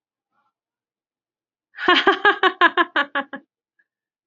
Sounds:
Laughter